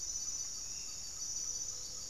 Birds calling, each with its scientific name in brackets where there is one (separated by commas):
Great Antshrike (Taraba major), Gray-fronted Dove (Leptotila rufaxilla), Hauxwell's Thrush (Turdus hauxwelli)